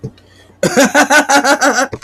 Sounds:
Laughter